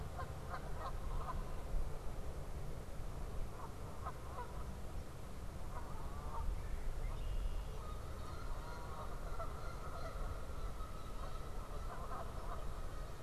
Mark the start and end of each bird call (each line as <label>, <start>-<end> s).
Canada Goose (Branta canadensis), 0.0-13.2 s
Red-bellied Woodpecker (Melanerpes carolinus), 6.4-7.1 s
Red-winged Blackbird (Agelaius phoeniceus), 6.9-7.7 s